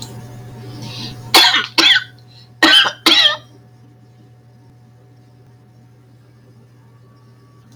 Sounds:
Cough